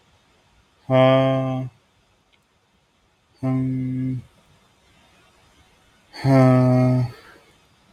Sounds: Sigh